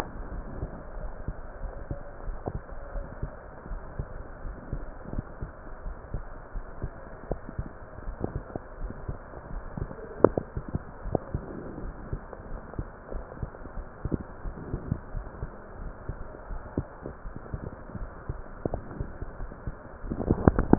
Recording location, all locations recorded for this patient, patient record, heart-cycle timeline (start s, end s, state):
pulmonary valve (PV)
aortic valve (AV)+pulmonary valve (PV)+tricuspid valve (TV)
#Age: Child
#Sex: Female
#Height: 165.0 cm
#Weight: 67.0 kg
#Pregnancy status: False
#Murmur: Unknown
#Murmur locations: nan
#Most audible location: nan
#Systolic murmur timing: nan
#Systolic murmur shape: nan
#Systolic murmur grading: nan
#Systolic murmur pitch: nan
#Systolic murmur quality: nan
#Diastolic murmur timing: nan
#Diastolic murmur shape: nan
#Diastolic murmur grading: nan
#Diastolic murmur pitch: nan
#Diastolic murmur quality: nan
#Outcome: Abnormal
#Campaign: 2015 screening campaign
0.00	2.62	unannotated
2.62	2.94	diastole
2.94	3.06	S1
3.06	3.20	systole
3.20	3.34	S2
3.34	3.70	diastole
3.70	3.84	S1
3.84	3.98	systole
3.98	4.10	S2
4.10	4.42	diastole
4.42	4.56	S1
4.56	4.70	systole
4.70	4.86	S2
4.86	5.12	diastole
5.12	5.26	S1
5.26	5.40	systole
5.40	5.52	S2
5.52	5.84	diastole
5.84	5.98	S1
5.98	6.12	systole
6.12	6.28	S2
6.28	6.52	diastole
6.52	6.66	S1
6.66	6.82	systole
6.82	6.92	S2
6.92	7.28	diastole
7.28	7.40	S1
7.40	7.54	systole
7.54	7.66	S2
7.66	8.06	diastole
8.06	8.18	S1
8.18	8.34	systole
8.34	8.46	S2
8.46	8.80	diastole
8.80	8.94	S1
8.94	9.05	systole
9.05	9.20	S2
9.20	9.50	diastole
9.50	9.64	S1
9.64	9.76	systole
9.76	9.88	S2
9.88	10.20	diastole
10.20	10.36	S1
10.36	10.54	systole
10.54	10.66	S2
10.66	11.04	diastole
11.04	11.20	S1
11.20	11.30	systole
11.30	11.42	S2
11.42	11.78	diastole
11.78	11.94	S1
11.94	12.08	systole
12.08	12.20	S2
12.20	12.50	diastole
12.50	12.62	S1
12.62	12.78	systole
12.78	12.88	S2
12.88	13.14	diastole
13.14	13.26	S1
13.26	13.38	systole
13.38	13.50	S2
13.50	13.76	diastole
13.76	13.86	S1
13.86	14.03	systole
14.03	14.13	S2
14.13	14.43	diastole
14.43	14.58	S1
14.58	14.72	systole
14.72	14.82	S2
14.82	15.12	diastole
15.12	15.28	S1
15.28	15.40	systole
15.40	15.52	S2
15.52	15.80	diastole
15.80	15.94	S1
15.94	16.06	systole
16.06	16.18	S2
16.18	16.50	diastole
16.50	16.62	S1
16.62	16.74	systole
16.74	16.86	S2
16.86	17.23	diastole
17.23	17.34	S1
17.34	17.52	systole
17.52	17.64	S2
17.64	17.96	diastole
17.96	18.10	S1
18.10	18.28	systole
18.28	18.34	S2
18.34	20.78	unannotated